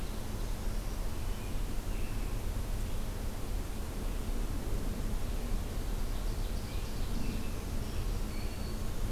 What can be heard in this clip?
Black-throated Green Warbler, American Robin, Ovenbird